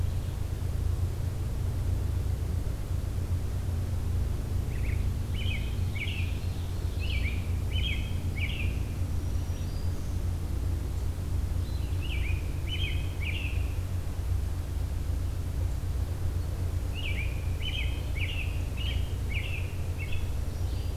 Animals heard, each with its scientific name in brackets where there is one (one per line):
Black-throated Green Warbler (Setophaga virens)
American Robin (Turdus migratorius)